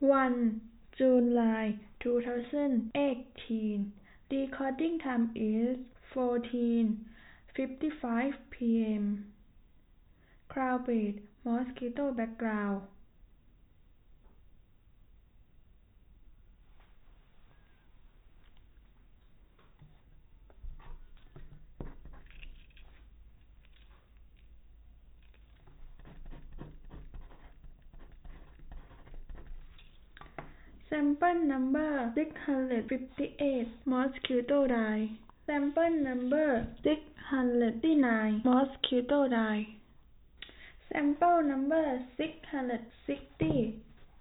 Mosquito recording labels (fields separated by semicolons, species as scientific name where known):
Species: no mosquito; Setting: cup